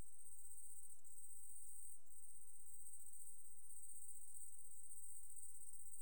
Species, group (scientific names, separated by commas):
Tettigonia viridissima, Orthoptera